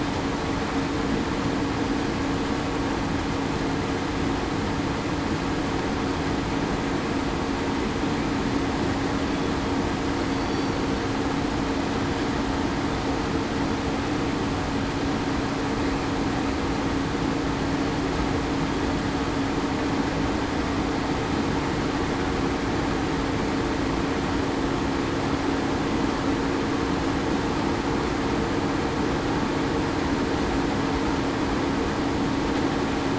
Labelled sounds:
10.3	10.8	killer whale, southern resident, 4.4 to 4.6 kHz

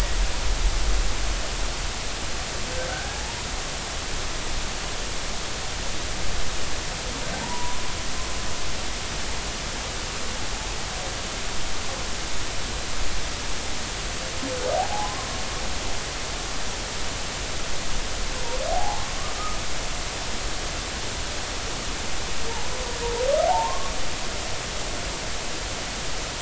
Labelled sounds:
2.9	3.2	humpback whale, 1.4 to 1.7 kHz
7.3	7.8	humpback whale, 0.80 to 1.1 kHz
14.7	15.1	humpback whale, 0.80 to 0.96 kHz
16.0	16.3	humpback whale, 0.96 to 1.2 kHz
18.7	19.0	humpback whale, 0.80 to 0.96 kHz
23.5	24.0	humpback whale, 0.80 to 1.2 kHz

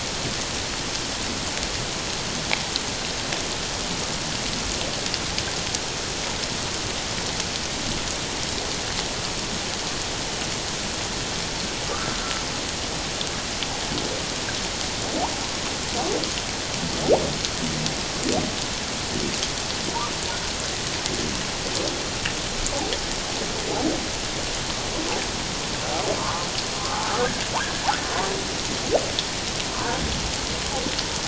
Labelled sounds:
11.9	12.2	humpback whale, 1.1 to 1.7 kHz
26.2	26.5	humpback whale, 0.88 to 1.3 kHz
27.6	27.9	humpback whale, 1.5 to 1.8 kHz

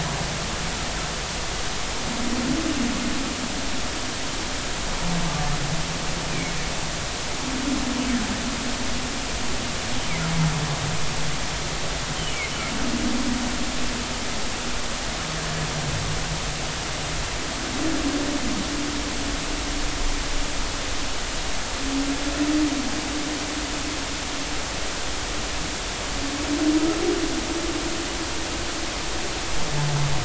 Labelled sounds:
6.3	6.5	humpback whale, 2.1 to 2.5 kHz

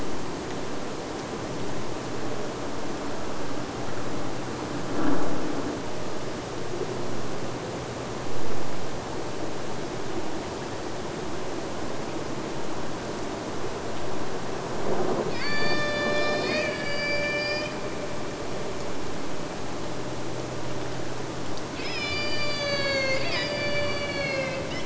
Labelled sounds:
15.3	17.9	killer whale, Bigg's (transient), AT1 transient, 0.46 to 8.0 kHz
21.7	24.8	killer whale, Bigg's (transient), AT1 transient, 0.46 to 8.0 kHz

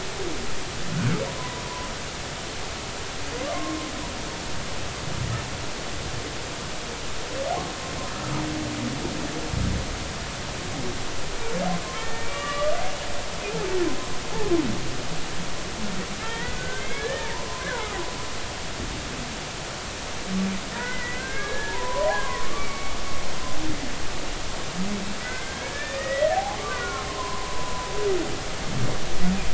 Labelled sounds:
1.3	1.9	humpback whale, 0.93 to 1.1 kHz
3.5	3.9	humpback whale, 0.99 to 1.1 kHz
11.9	12.7	humpback whale, 1.1 to 2.9 kHz
16.2	18.0	humpback whale, 0.86 to 2.3 kHz
20.8	23.0	humpback whale, 0.86 to 2.4 kHz
25.2	27.9	humpback whale, 0.80 to 2.5 kHz

